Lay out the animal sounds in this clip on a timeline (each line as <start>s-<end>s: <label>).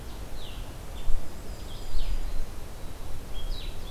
0.2s-3.9s: Blue-headed Vireo (Vireo solitarius)
0.7s-2.2s: Black-and-white Warbler (Mniotilta varia)
1.0s-2.6s: Black-throated Green Warbler (Setophaga virens)